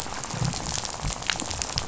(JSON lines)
{"label": "biophony, rattle", "recorder": "SoundTrap 500"}